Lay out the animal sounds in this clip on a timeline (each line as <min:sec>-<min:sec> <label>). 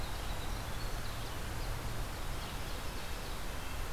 0:00.0-0:01.8 Winter Wren (Troglodytes hiemalis)
0:02.8-0:03.9 Red-breasted Nuthatch (Sitta canadensis)